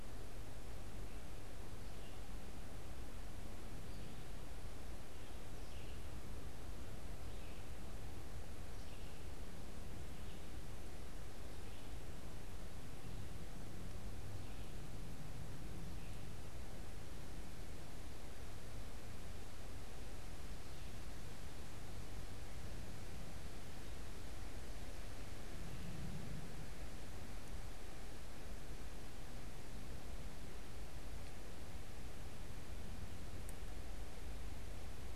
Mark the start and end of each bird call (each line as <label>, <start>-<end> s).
Red-eyed Vireo (Vireo olivaceus), 5.2-12.0 s